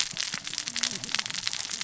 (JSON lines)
{"label": "biophony, cascading saw", "recorder": "SoundTrap 600 or HydroMoth"}